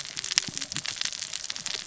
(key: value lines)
label: biophony, cascading saw
recorder: SoundTrap 600 or HydroMoth